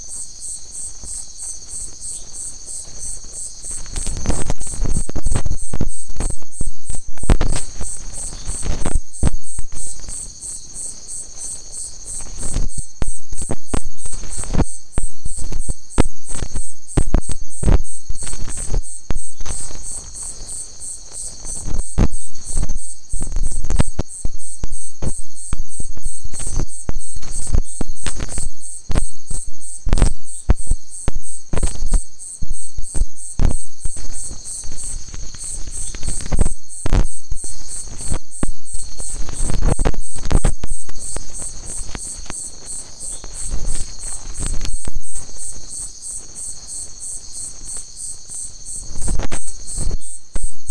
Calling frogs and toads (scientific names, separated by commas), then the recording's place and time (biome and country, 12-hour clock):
Adenomera marmorata
Atlantic Forest, Brazil, 11:15pm